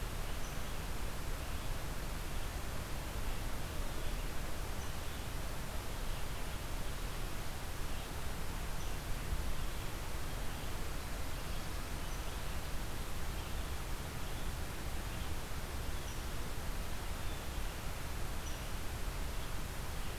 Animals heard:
forest ambience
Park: Marsh-Billings-Rockefeller National Historical Park